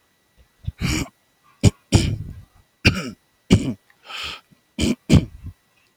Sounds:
Throat clearing